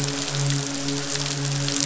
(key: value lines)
label: biophony, midshipman
recorder: SoundTrap 500